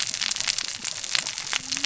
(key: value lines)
label: biophony, cascading saw
recorder: SoundTrap 600 or HydroMoth